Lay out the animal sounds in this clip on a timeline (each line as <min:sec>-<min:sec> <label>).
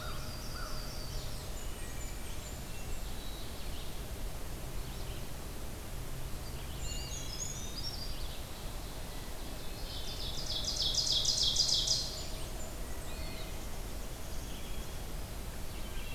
0:00.0-0:00.6 Eastern Wood-Pewee (Contopus virens)
0:00.0-0:01.5 American Crow (Corvus brachyrhynchos)
0:00.0-0:01.6 Yellow-rumped Warbler (Setophaga coronata)
0:00.0-0:16.1 Red-eyed Vireo (Vireo olivaceus)
0:01.1-0:03.2 Blackburnian Warbler (Setophaga fusca)
0:01.4-0:02.3 Wood Thrush (Hylocichla mustelina)
0:02.7-0:03.7 Hermit Thrush (Catharus guttatus)
0:06.4-0:08.6 Brown Creeper (Certhia americana)
0:06.5-0:07.1 Wood Thrush (Hylocichla mustelina)
0:06.7-0:08.1 Eastern Wood-Pewee (Contopus virens)
0:07.9-0:12.6 Ovenbird (Seiurus aurocapilla)
0:11.7-0:13.4 Blackburnian Warbler (Setophaga fusca)
0:13.0-0:13.6 Eastern Wood-Pewee (Contopus virens)